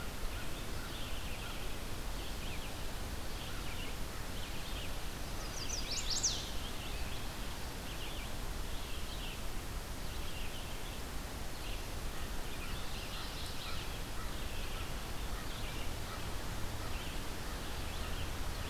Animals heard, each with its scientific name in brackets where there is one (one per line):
American Crow (Corvus brachyrhynchos)
Ovenbird (Seiurus aurocapilla)
Chestnut-sided Warbler (Setophaga pensylvanica)
Red-eyed Vireo (Vireo olivaceus)